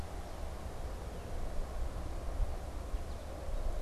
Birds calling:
American Goldfinch (Spinus tristis)

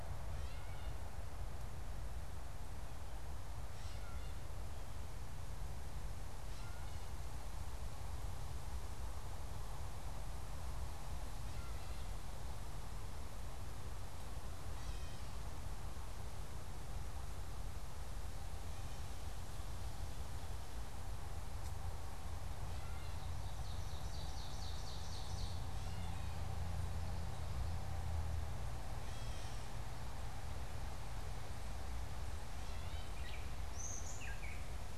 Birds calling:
Gray Catbird (Dumetella carolinensis)
Ovenbird (Seiurus aurocapilla)

